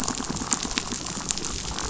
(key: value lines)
label: biophony, chatter
recorder: SoundTrap 500